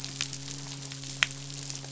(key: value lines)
label: biophony, midshipman
recorder: SoundTrap 500